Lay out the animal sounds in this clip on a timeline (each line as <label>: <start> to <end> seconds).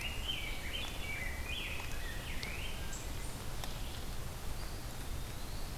Rose-breasted Grosbeak (Pheucticus ludovicianus): 0.0 to 2.8 seconds
Eastern Wood-Pewee (Contopus virens): 4.3 to 5.8 seconds